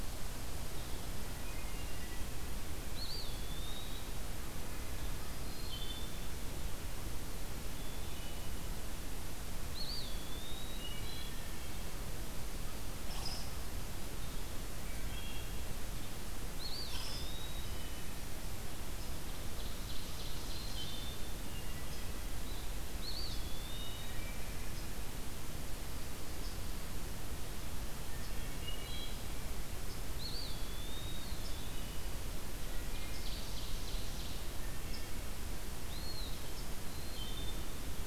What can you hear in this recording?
Wood Thrush, Eastern Wood-Pewee, unknown mammal, Ovenbird